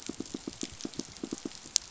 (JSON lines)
{"label": "biophony, pulse", "recorder": "SoundTrap 500"}